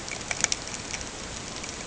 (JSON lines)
{"label": "ambient", "recorder": "HydroMoth"}